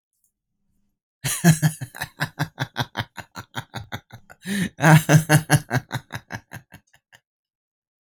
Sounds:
Laughter